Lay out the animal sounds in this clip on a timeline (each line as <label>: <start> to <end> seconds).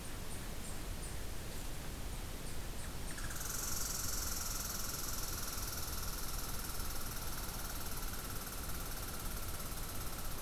Red Squirrel (Tamiasciurus hudsonicus): 0.0 to 10.4 seconds